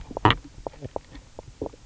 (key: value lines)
label: biophony, knock croak
recorder: SoundTrap 300